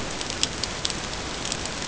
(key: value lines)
label: ambient
recorder: HydroMoth